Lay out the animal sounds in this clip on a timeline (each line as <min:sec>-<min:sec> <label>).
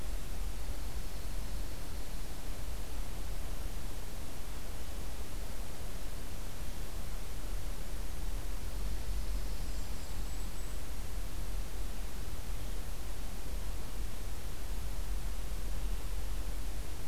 0:00.5-0:02.4 Dark-eyed Junco (Junco hyemalis)
0:08.8-0:10.2 Yellow-rumped Warbler (Setophaga coronata)
0:08.9-0:10.5 Dark-eyed Junco (Junco hyemalis)
0:09.5-0:10.9 Golden-crowned Kinglet (Regulus satrapa)